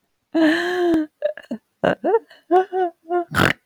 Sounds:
Laughter